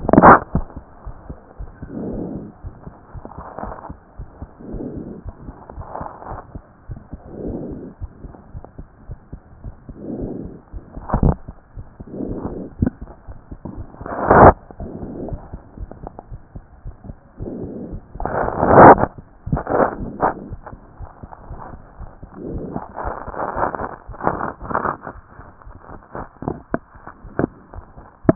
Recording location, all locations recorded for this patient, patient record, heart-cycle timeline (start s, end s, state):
aortic valve (AV)
aortic valve (AV)+pulmonary valve (PV)+tricuspid valve (TV)+mitral valve (MV)
#Age: Child
#Sex: Male
#Height: 115.0 cm
#Weight: 22.8 kg
#Pregnancy status: False
#Murmur: Absent
#Murmur locations: nan
#Most audible location: nan
#Systolic murmur timing: nan
#Systolic murmur shape: nan
#Systolic murmur grading: nan
#Systolic murmur pitch: nan
#Systolic murmur quality: nan
#Diastolic murmur timing: nan
#Diastolic murmur shape: nan
#Diastolic murmur grading: nan
#Diastolic murmur pitch: nan
#Diastolic murmur quality: nan
#Outcome: Normal
#Campaign: 2014 screening campaign
0.00	7.92	unannotated
7.92	8.00	diastole
8.00	8.09	S1
8.09	8.24	systole
8.24	8.33	S2
8.33	8.54	diastole
8.54	8.64	S1
8.64	8.78	systole
8.78	8.86	S2
8.86	9.08	diastole
9.08	9.17	S1
9.17	9.32	systole
9.32	9.40	S2
9.40	9.65	diastole
9.65	9.74	S1
9.74	9.88	systole
9.88	9.94	S2
9.94	10.19	diastole
10.19	10.29	S1
10.29	10.43	systole
10.43	10.52	S2
10.52	10.74	diastole
10.74	10.84	S1
10.84	10.96	systole
10.96	11.02	S2
11.02	11.20	diastole
11.20	28.35	unannotated